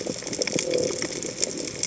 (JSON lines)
{"label": "biophony", "recorder": "HydroMoth"}